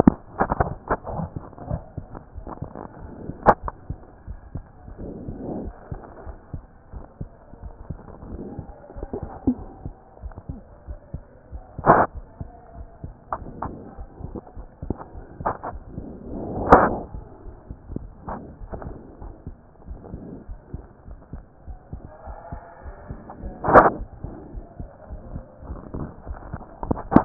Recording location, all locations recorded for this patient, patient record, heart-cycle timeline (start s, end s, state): aortic valve (AV)
aortic valve (AV)+pulmonary valve (PV)+tricuspid valve (TV)+mitral valve (MV)
#Age: Child
#Sex: Female
#Height: 121.0 cm
#Weight: 21.4 kg
#Pregnancy status: False
#Murmur: Absent
#Murmur locations: nan
#Most audible location: nan
#Systolic murmur timing: nan
#Systolic murmur shape: nan
#Systolic murmur grading: nan
#Systolic murmur pitch: nan
#Systolic murmur quality: nan
#Diastolic murmur timing: nan
#Diastolic murmur shape: nan
#Diastolic murmur grading: nan
#Diastolic murmur pitch: nan
#Diastolic murmur quality: nan
#Outcome: Normal
#Campaign: 2014 screening campaign
0.00	18.38	unannotated
18.38	18.62	diastole
18.62	18.78	S1
18.78	18.86	systole
18.86	18.98	S2
18.98	19.22	diastole
19.22	19.34	S1
19.34	19.46	systole
19.46	19.56	S2
19.56	19.88	diastole
19.88	20.00	S1
20.00	20.12	systole
20.12	20.22	S2
20.22	20.48	diastole
20.48	20.60	S1
20.60	20.74	systole
20.74	20.84	S2
20.84	21.08	diastole
21.08	21.18	S1
21.18	21.34	systole
21.34	21.44	S2
21.44	21.68	diastole
21.68	21.78	S1
21.78	21.92	systole
21.92	22.02	S2
22.02	22.28	diastole
22.28	22.38	S1
22.38	22.52	systole
22.52	22.62	S2
22.62	22.84	diastole
22.84	22.96	S1
22.96	23.10	systole
23.10	23.20	S2
23.20	23.44	diastole
23.44	27.25	unannotated